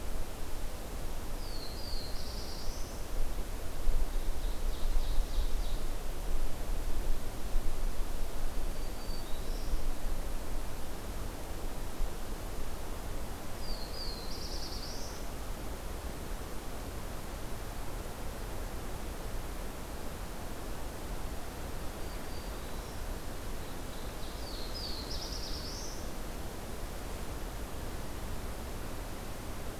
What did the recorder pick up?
Black-throated Blue Warbler, Ovenbird, Black-throated Green Warbler